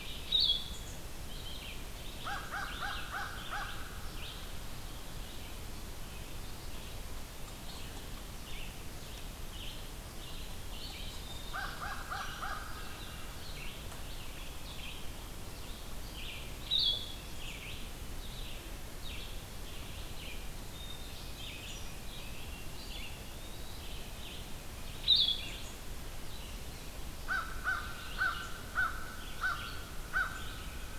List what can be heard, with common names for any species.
Red-eyed Vireo, Blue-headed Vireo, American Crow, Black-throated Green Warbler, Eastern Wood-Pewee